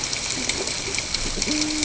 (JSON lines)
{"label": "ambient", "recorder": "HydroMoth"}